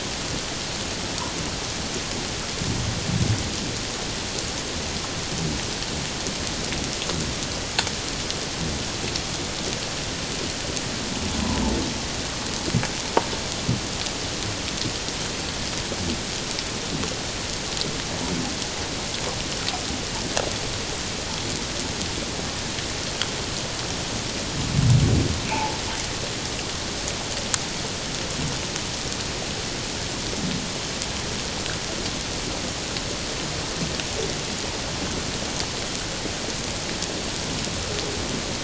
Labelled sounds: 25.5	25.8	humpback whale, 0.81 to 1.0 kHz

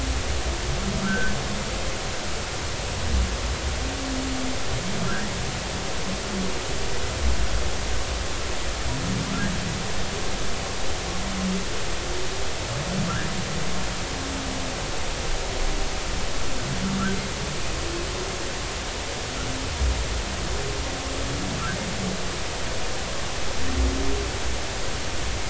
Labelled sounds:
1.1	1.3	humpback whale, 1.5 to 1.7 kHz

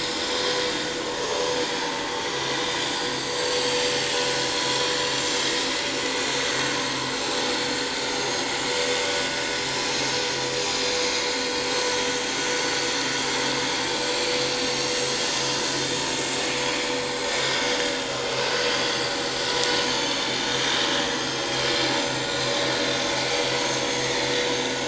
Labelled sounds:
0.0	0.3	vessel noise, 5.1 to 5.5 kHz
3.1	5.2	vessel noise, 4.1 to 7.7 kHz
6.7	7.0	vessel noise, 6.3 to 6.4 kHz
8.1	8.5	vessel noise, 6.4 to 6.7 kHz
9.9	10.3	vessel noise, 6.9 to 7.2 kHz
12.5	12.9	vessel noise, 4.4 to 4.7 kHz
18.8	20.2	vessel noise, 2.9 to 6.5 kHz
21.0	21.5	vessel noise, 5.1 to 6.3 kHz
22.0	22.3	vessel noise, 6.2 to 6.3 kHz
23.9	24.2	vessel noise, 1.8 to 2.1 kHz

